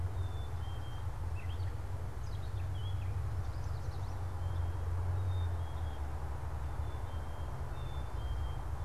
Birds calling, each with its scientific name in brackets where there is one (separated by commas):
Yellow Warbler (Setophaga petechia), Black-capped Chickadee (Poecile atricapillus), Gray Catbird (Dumetella carolinensis)